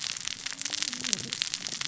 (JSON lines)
{"label": "biophony, cascading saw", "recorder": "SoundTrap 600 or HydroMoth"}